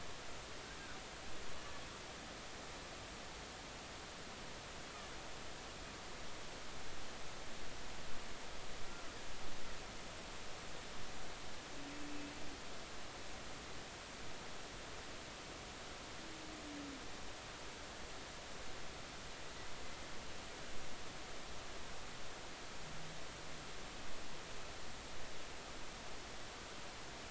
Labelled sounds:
8.8	9.1	humpback whale, 1.3 to 1.4 kHz

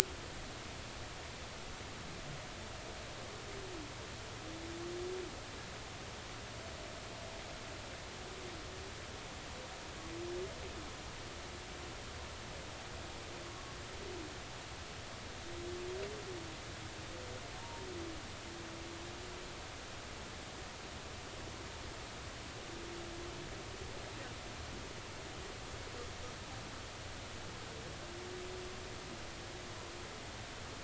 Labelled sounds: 17.6	17.9	humpback whale, 0.86 to 0.99 kHz

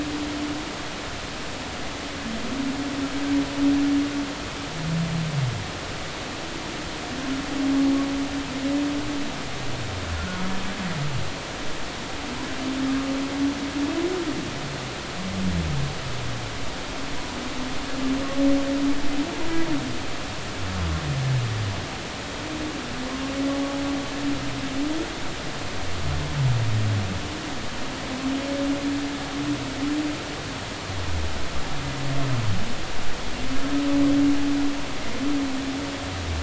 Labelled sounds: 10.2	10.4	humpback whale, 1.3 to 1.5 kHz

